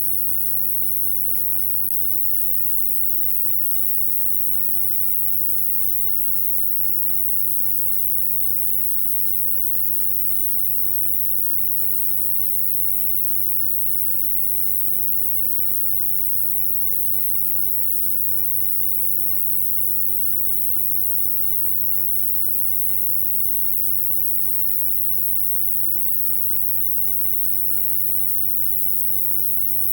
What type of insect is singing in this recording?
orthopteran